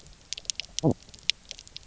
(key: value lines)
label: biophony, knock croak
recorder: SoundTrap 300